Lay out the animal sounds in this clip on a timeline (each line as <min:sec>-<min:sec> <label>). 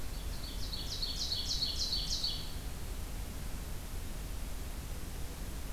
0:00.0-0:02.6 Ovenbird (Seiurus aurocapilla)